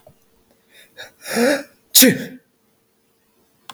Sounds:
Sneeze